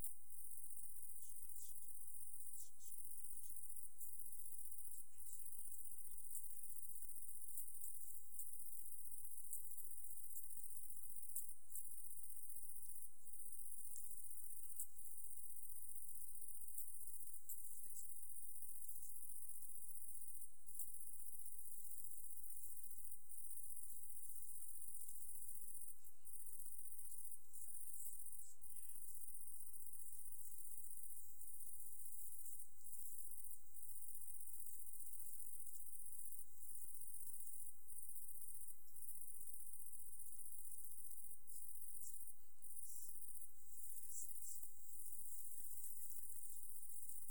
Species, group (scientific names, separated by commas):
Tettigonia viridissima, Orthoptera